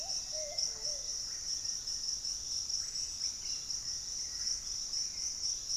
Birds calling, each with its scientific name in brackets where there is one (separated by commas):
unidentified bird, Cobalt-winged Parakeet (Brotogeris cyanoptera), Hauxwell's Thrush (Turdus hauxwelli), Russet-backed Oropendola (Psarocolius angustifrons), Black-faced Antthrush (Formicarius analis)